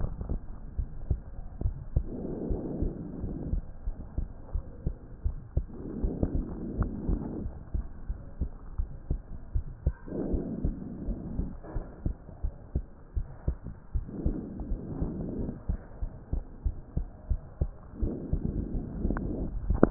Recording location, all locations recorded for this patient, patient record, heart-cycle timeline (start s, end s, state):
pulmonary valve (PV)
aortic valve (AV)+pulmonary valve (PV)+tricuspid valve (TV)+mitral valve (MV)
#Age: Adolescent
#Sex: Male
#Height: 142.0 cm
#Weight: 37.6 kg
#Pregnancy status: False
#Murmur: Absent
#Murmur locations: nan
#Most audible location: nan
#Systolic murmur timing: nan
#Systolic murmur shape: nan
#Systolic murmur grading: nan
#Systolic murmur pitch: nan
#Systolic murmur quality: nan
#Diastolic murmur timing: nan
#Diastolic murmur shape: nan
#Diastolic murmur grading: nan
#Diastolic murmur pitch: nan
#Diastolic murmur quality: nan
#Outcome: Normal
#Campaign: 2015 screening campaign
0.00	0.40	unannotated
0.40	0.42	S2
0.42	0.74	diastole
0.74	0.86	S1
0.86	1.08	systole
1.08	1.22	S2
1.22	1.58	diastole
1.58	1.76	S1
1.76	1.93	systole
1.93	2.07	S2
2.07	2.42	diastole
2.42	2.60	S1
2.60	2.78	systole
2.78	2.92	S2
2.92	3.22	diastole
3.22	3.34	S1
3.34	3.50	systole
3.50	3.64	S2
3.64	3.85	diastole
3.85	3.94	S1
3.94	4.14	systole
4.14	4.28	S2
4.28	4.52	diastole
4.52	4.62	S1
4.62	4.82	systole
4.82	4.94	S2
4.94	5.23	diastole
5.23	5.36	S1
5.36	5.53	systole
5.53	5.68	S2
5.68	5.98	diastole
5.98	6.12	S1
6.12	6.32	systole
6.32	6.46	S2
6.46	6.76	diastole
6.76	6.90	S1
6.90	7.06	systole
7.06	7.20	S2
7.20	7.42	diastole
7.42	7.52	S1
7.52	7.70	systole
7.70	7.86	S2
7.86	8.06	diastole
8.06	8.20	S1
8.20	8.38	systole
8.38	8.50	S2
8.50	8.77	diastole
8.77	8.88	S1
8.88	9.08	systole
9.08	9.22	S2
9.22	9.52	diastole
9.52	9.66	S1
9.66	9.82	systole
9.82	9.94	S2
9.94	10.28	diastole
10.28	10.46	S1
10.46	10.62	systole
10.62	10.76	S2
10.76	11.06	diastole
11.06	11.18	S1
11.18	11.36	systole
11.36	11.48	S2
11.48	11.74	diastole
11.74	11.84	S1
11.84	12.03	systole
12.03	12.16	S2
12.16	12.41	diastole
12.41	12.54	S1
12.54	12.72	systole
12.72	12.86	S2
12.86	13.14	diastole
13.14	13.28	S1
13.28	13.45	systole
13.45	13.58	S2
13.58	13.92	diastole
13.92	14.06	S1
14.06	14.24	systole
14.24	14.38	S2
14.38	14.68	diastole
14.68	14.80	S1
14.80	15.00	systole
15.00	15.14	S2
15.14	15.36	diastole
15.36	15.48	S1
15.48	15.66	systole
15.66	15.76	S2
15.76	16.00	diastole
16.00	16.10	S1
16.10	16.30	systole
16.30	16.40	S2
16.40	16.63	diastole
16.63	16.76	S1
16.76	16.94	systole
16.94	17.04	S2
17.04	17.26	diastole
17.26	17.38	S1
17.38	17.58	systole
17.58	17.70	S2
17.70	17.93	diastole
17.93	19.90	unannotated